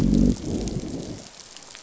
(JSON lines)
{"label": "biophony, growl", "recorder": "SoundTrap 500"}